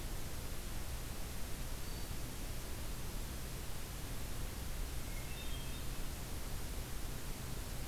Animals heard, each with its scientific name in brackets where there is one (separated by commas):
Hermit Thrush (Catharus guttatus)